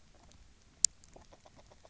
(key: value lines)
label: biophony, grazing
recorder: SoundTrap 300